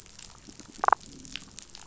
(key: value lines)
label: biophony
recorder: SoundTrap 500

label: biophony, damselfish
recorder: SoundTrap 500